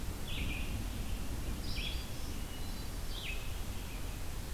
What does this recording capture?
Red-eyed Vireo, Hermit Thrush